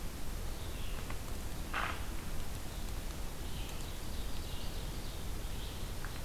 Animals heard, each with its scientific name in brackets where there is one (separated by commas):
Ovenbird (Seiurus aurocapilla), Red-eyed Vireo (Vireo olivaceus)